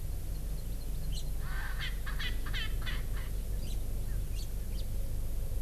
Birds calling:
Hawaii Amakihi (Chlorodrepanis virens), Erckel's Francolin (Pternistis erckelii), House Finch (Haemorhous mexicanus)

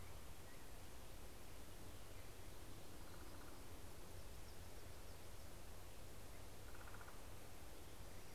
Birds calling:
Common Raven (Corvus corax), Hermit Warbler (Setophaga occidentalis)

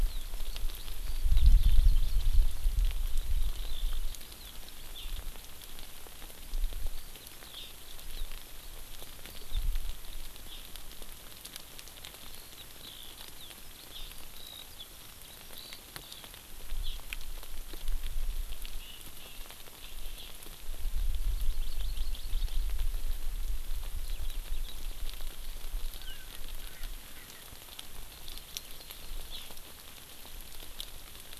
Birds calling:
Eurasian Skylark (Alauda arvensis), Erckel's Francolin (Pternistis erckelii), Hawaii Amakihi (Chlorodrepanis virens)

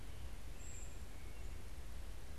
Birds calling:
Brown Creeper (Certhia americana), American Robin (Turdus migratorius), White-breasted Nuthatch (Sitta carolinensis)

